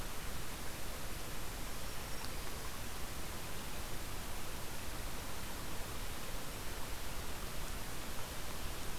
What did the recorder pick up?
Black-throated Green Warbler